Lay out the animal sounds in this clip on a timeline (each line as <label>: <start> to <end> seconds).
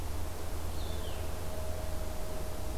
Red-eyed Vireo (Vireo olivaceus): 0.3 to 2.8 seconds